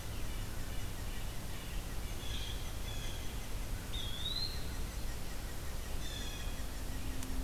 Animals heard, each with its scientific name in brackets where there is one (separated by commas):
Blue Jay (Cyanocitta cristata), unidentified call, Red-breasted Nuthatch (Sitta canadensis), Eastern Wood-Pewee (Contopus virens)